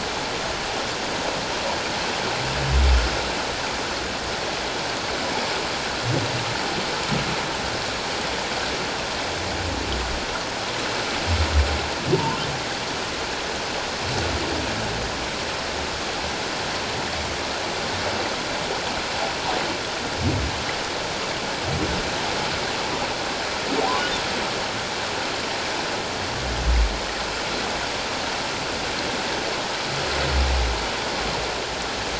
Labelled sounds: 12.1	12.4	humpback whale, 0.84 to 1.1 kHz

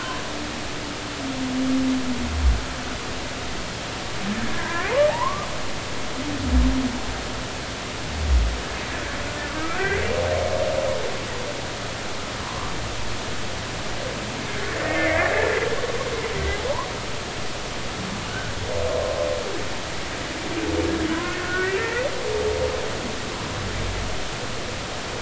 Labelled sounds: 4.5	5.5	humpback whale, 0.80 to 2.2 kHz
9.5	10.0	humpback whale, 1.2 to 1.7 kHz
12.4	12.7	humpback whale, 0.93 to 1.2 kHz
14.8	15.3	humpback whale, 1.7 to 2.5 kHz
18.3	18.5	humpback whale, 1.4 to 1.7 kHz
21.4	22.1	humpback whale, 1.4 to 2.0 kHz

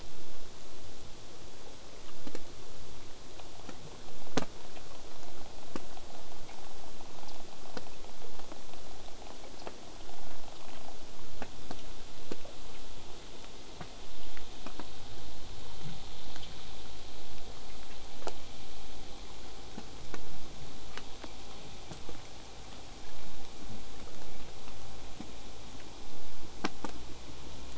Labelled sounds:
0.0	5.0	vessel noise, 0.04 to 8.0 kHz

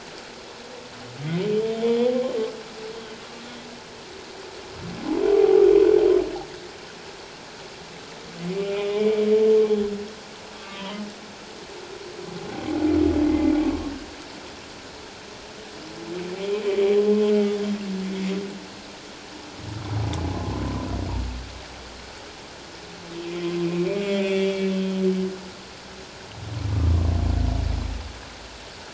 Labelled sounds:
1.8	2.1	humpback whale, 3.2 to 3.6 kHz
5.3	5.6	humpback whale, 0.78 to 0.84 kHz
8.6	9.3	humpback whale, 2.2 to 2.5 kHz
10.5	11.0	humpback whale, 1.1 to 3.3 kHz
13.3	13.5	humpback whale, 2.0 to 2.2 kHz
20.3	20.6	humpback whale, 1.0 to 1.1 kHz
23.3	25.0	humpback whale, 1.9 to 3.6 kHz

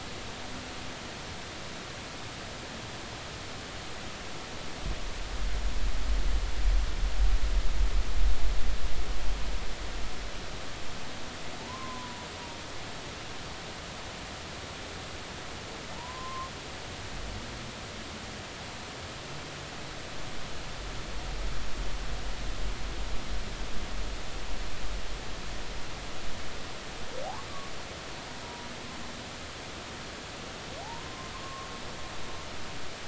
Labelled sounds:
11.6	12.2	humpback whale, 0.83 to 1.1 kHz
15.9	16.5	humpback whale, 0.86 to 1.1 kHz
28.4	28.7	humpback whale, 0.93 to 0.99 kHz
30.8	31.7	humpback whale, 0.80 to 1.2 kHz

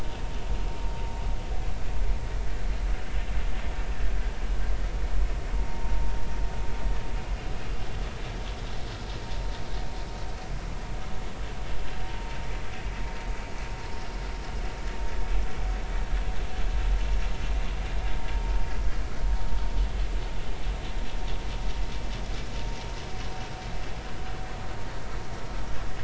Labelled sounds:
5.5	5.9	vessel noise, 0.86 to 1.1 kHz

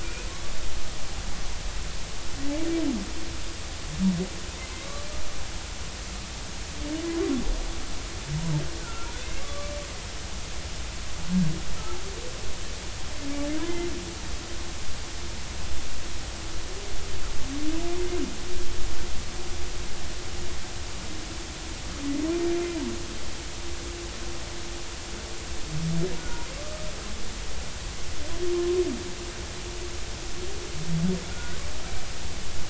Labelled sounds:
0.0	0.3	humpback whale, 1.4 to 2.6 kHz
4.7	5.0	humpback whale, 2.0 to 2.3 kHz
8.8	9.7	humpback whale, 1.1 to 2.2 kHz
26.2	26.9	humpback whale, 1.1 to 1.5 kHz
31.3	31.6	humpback whale, 1.4 to 1.6 kHz

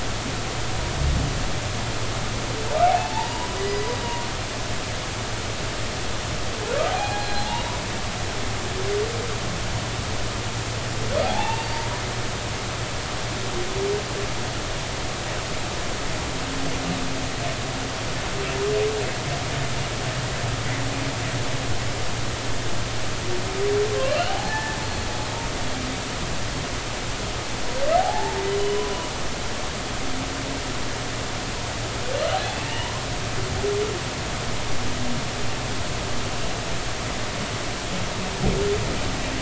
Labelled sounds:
2.9	3.9	humpback whale, 0.80 to 5.0 kHz
6.9	7.6	humpback whale, 0.80 to 4.2 kHz
11.2	11.8	humpback whale, 0.80 to 4.7 kHz
24.0	24.8	humpback whale, 0.80 to 3.1 kHz
28.0	28.9	humpback whale, 0.80 to 3.0 kHz
32.5	32.9	humpback whale, 0.86 to 3.1 kHz

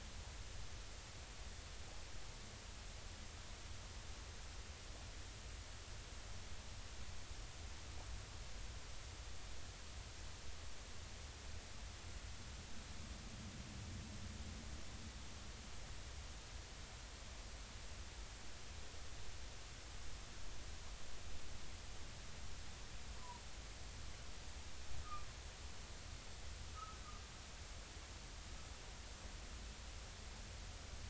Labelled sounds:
23.2	23.4	humpback whale, 0.90 to 1.1 kHz
26.7	27.0	humpback whale, 1.1 to 1.4 kHz

